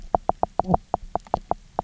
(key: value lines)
label: biophony, knock croak
recorder: SoundTrap 300